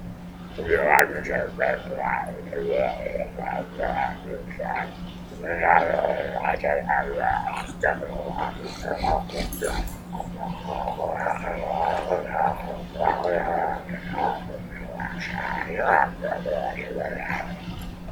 Is there a person in the area?
yes